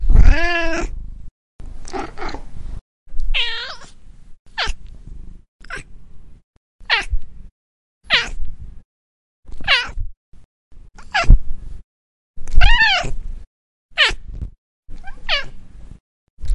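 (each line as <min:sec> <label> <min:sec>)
0:00.0 A cat meows. 0:04.0
0:04.6 A cat meowing. 0:04.8
0:05.6 A cat meowing. 0:05.9
0:06.9 A cat meowing. 0:07.4
0:08.1 A cat meowing. 0:08.7
0:09.5 A cat meowing. 0:10.2
0:11.1 A cat meowing. 0:11.6
0:12.3 A cat meowing. 0:15.7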